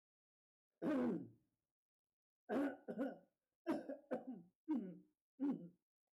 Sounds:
Throat clearing